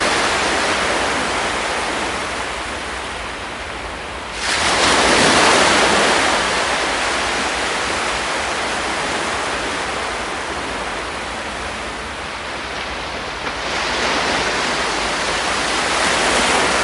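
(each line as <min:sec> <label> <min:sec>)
0:00.0 Sea waves hitting the shore loudly and repeatedly. 0:16.8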